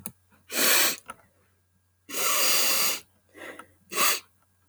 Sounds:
Sniff